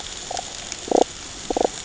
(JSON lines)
{"label": "ambient", "recorder": "HydroMoth"}